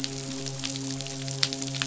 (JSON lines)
{"label": "biophony, midshipman", "recorder": "SoundTrap 500"}